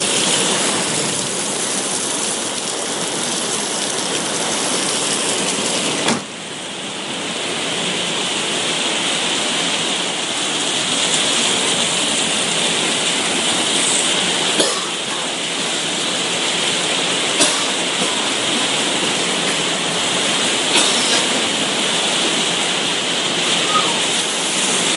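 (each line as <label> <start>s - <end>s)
Heavy rain is falling outside. 0.0s - 25.0s
A car door closing. 5.9s - 6.3s
A person coughs loudly. 14.4s - 14.8s
A person coughs loudly. 17.2s - 17.7s
A person coughs loudly. 20.6s - 21.0s
A person whistles. 23.6s - 24.1s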